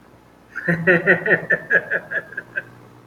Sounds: Laughter